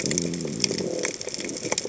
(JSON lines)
{"label": "biophony", "recorder": "HydroMoth"}